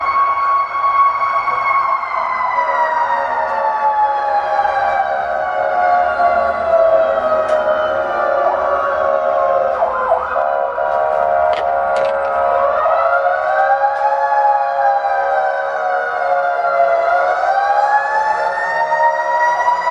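0.0s The siren of an emergency vehicle. 19.9s

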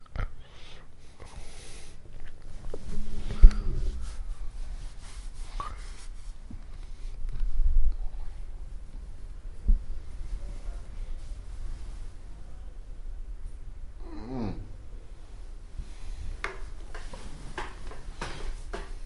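0.0s Soft, faint snoring continuously. 19.1s

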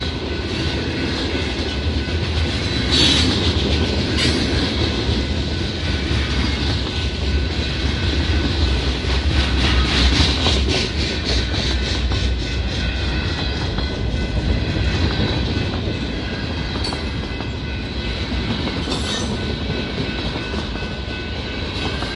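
0.1s A repetitive bell rings while a freight train rumbles along the railroad tracks, with the mechanical clatter of boxcars echoing rhythmically. 22.2s

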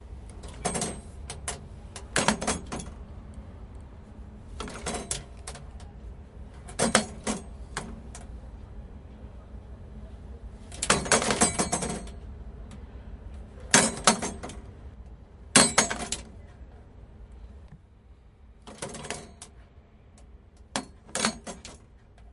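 0.5s Metal items are dropped, producing loud rattling and metallic sounds. 3.1s
4.5s Metal items drop, producing a rattling, muffled metallic sound. 5.9s
6.6s Metal items drop, producing a loud rattling sound. 7.9s
10.6s Metal items are dropped, producing loud rattling and metallic sounds. 12.3s
13.6s A metal item drops, emitting a loud rattling and metallic sound. 14.7s
15.5s A metal item drops, emitting a loud rattling and metallic sound. 16.3s
18.5s Metal items drop, producing a rattling, muffled metallic sound. 19.6s
20.6s Metal items drop, producing a rattling, muffled metallic sound. 21.8s

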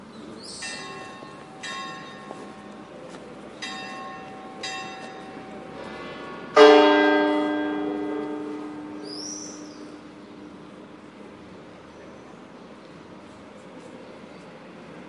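0.0s A high-pitched bell rings rhythmically in the distance. 6.6s
6.5s A bell rings loudly once outdoors. 14.6s

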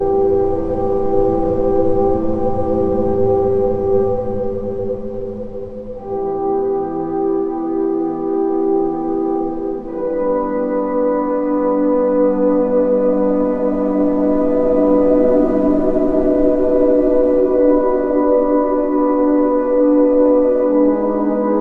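0.0s Monotonous low-pitched soundtrack with slight variation. 4.3s
4.3s The monotonous soundtrack fades out. 5.9s
5.9s Monotonous soundtrack with slight variations in a medium range. 9.8s
9.8s Monotonous, high-pitched soundtrack with slight variations. 20.9s
13.4s Eerie, quiet whistling with a monotone low-pitched background sound. 17.6s
20.9s An eerie, fear-inducing, monotonous background soundtrack in a low register. 21.6s

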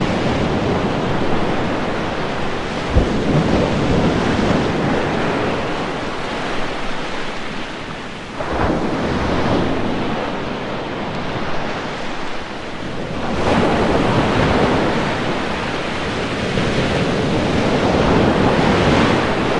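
0.0s Small waves gently landing on a smooth sandy beach. 19.6s

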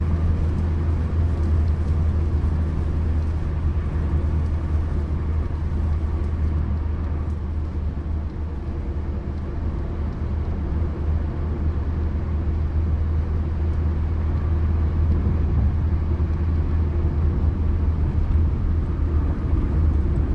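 0.0s A car is cruising on the highway during light rainfall with the windows shut. 20.3s

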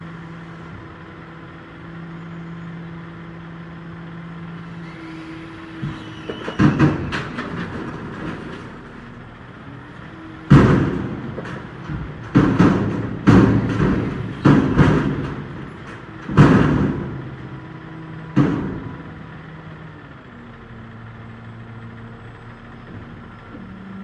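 0.0s Soft indistinct whirring. 6.1s
6.1s Metallic knocking on containers, muffled. 8.8s
8.7s A quiet motor is rumbling. 10.4s
10.4s Metallic knocking on containers, muffled. 19.2s
19.1s A quiet engine hums. 24.0s

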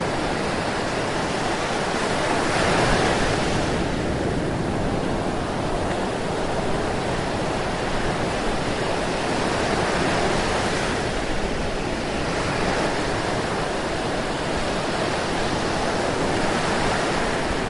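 0.0s Waves crashing loudly on the beach. 17.7s

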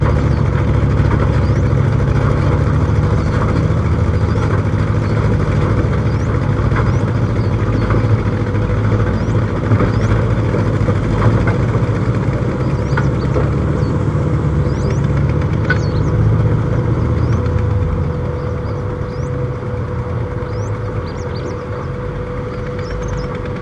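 0.0s A heavy engine runs with a dull, bassy sound in an oscillating pattern accompanied by irregular chirping sounds. 12.3s
12.3s Heavy engine running with a dull, bassy sound decreasing in loudness, accompanied by irregular chirping. 23.6s

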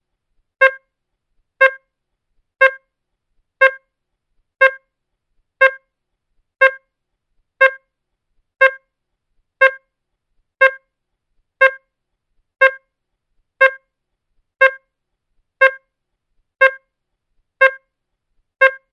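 0.6s A loud horn sounds in a steady pattern. 18.8s

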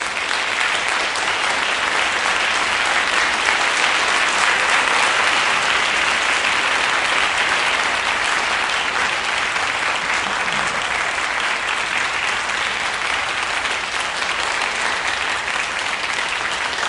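0.0s Continuous clapping from a large crowd. 16.9s

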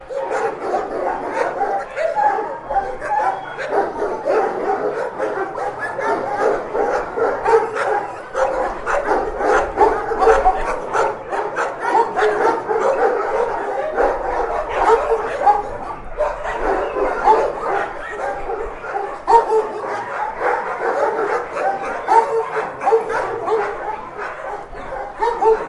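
0.0s A group of dogs barking. 25.7s

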